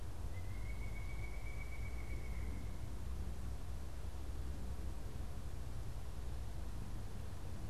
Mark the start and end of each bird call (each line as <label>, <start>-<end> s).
Pileated Woodpecker (Dryocopus pileatus), 0.0-2.8 s